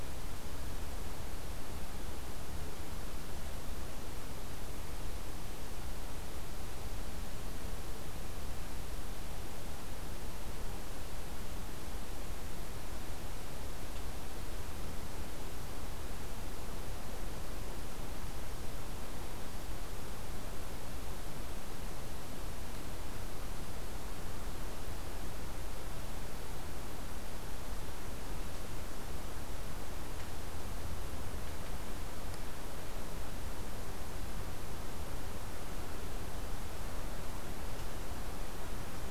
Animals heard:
forest ambience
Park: Hubbard Brook Experimental Forest